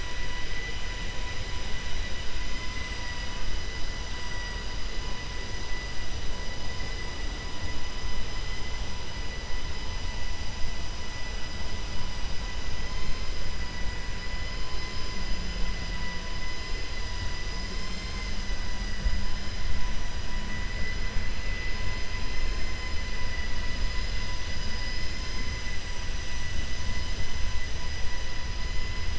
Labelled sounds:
22.3	22.9	vessel noise, 1.0 to 3.1 kHz

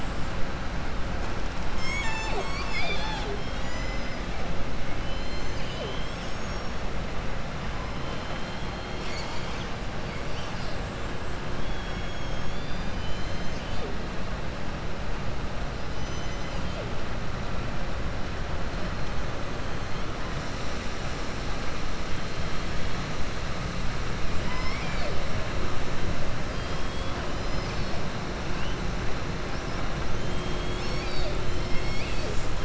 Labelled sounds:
4.9	6.1	killer whale, southern resident, 2.1 to 7.3 kHz
31.5	32.3	killer whale, southern resident, 2.1 to 5.5 kHz

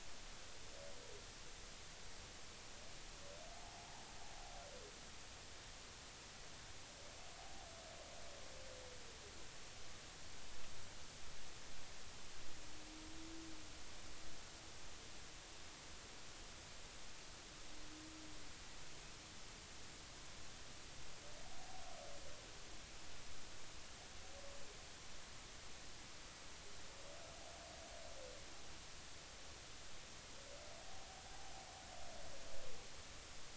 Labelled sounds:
3.5	3.9	humpback whale, 0.80 to 0.99 kHz
21.5	21.8	humpback whale, 0.80 to 0.86 kHz

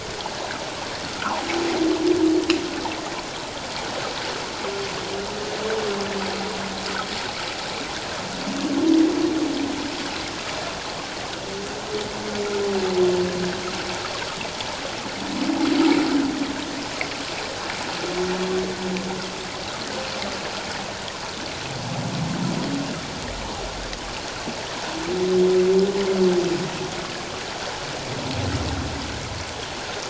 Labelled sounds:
1.2	1.5	humpback whale, 0.78 to 1.6 kHz

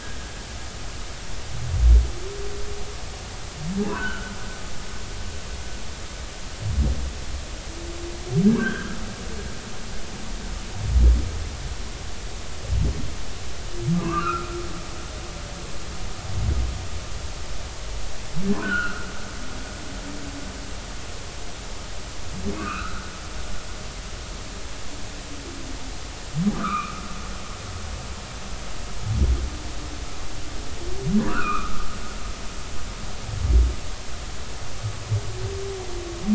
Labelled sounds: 3.9	4.3	humpback whale, 1.3 to 3.2 kHz
8.4	9.0	humpback whale, 1.2 to 3.3 kHz
13.9	14.5	humpback whale, 0.96 to 2.8 kHz
18.6	19.1	humpback whale, 1.2 to 3.1 kHz
22.5	23.0	humpback whale, 1.0 to 2.8 kHz
26.5	27.0	humpback whale, 1.0 to 2.6 kHz
31.3	31.9	humpback whale, 1.1 to 2.8 kHz

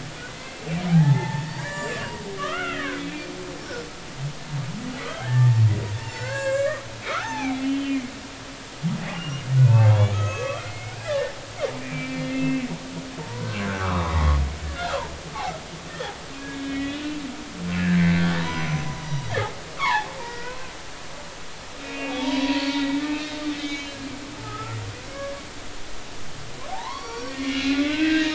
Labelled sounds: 0.3	3.0	humpback whale, 0.80 to 7.6 kHz
5.1	5.7	humpback whale, 0.80 to 1.9 kHz
6.0	8.1	humpback whale, 0.80 to 7.7 kHz
9.1	11.4	humpback whale, 1.0 to 6.5 kHz
11.8	12.7	humpback whale, 2.0 to 2.7 kHz
13.2	15.0	humpback whale, 0.86 to 2.0 kHz
15.9	17.0	humpback whale, 1.6 to 3.6 kHz
17.8	19.4	humpback whale, 0.90 to 6.1 kHz
19.8	20.6	humpback whale, 0.80 to 3.6 kHz
21.8	24.8	humpback whale, 0.83 to 6.6 kHz
25.1	25.4	humpback whale, 1.6 to 1.7 kHz
26.7	28.3	humpback whale, 0.80 to 5.8 kHz

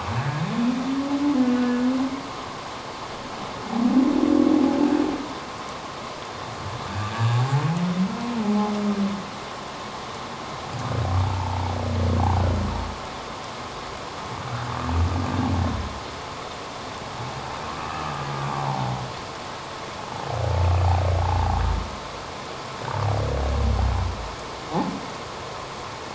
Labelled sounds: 0.2	0.4	humpback whale, 1.5 to 1.8 kHz
8.4	8.7	humpback whale, 0.78 to 0.91 kHz
11.3	11.7	humpback whale, 0.81 to 1.0 kHz
17.8	18.1	humpback whale, 1.1 to 2.7 kHz

